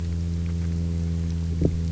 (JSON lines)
{"label": "anthrophony, boat engine", "recorder": "SoundTrap 300"}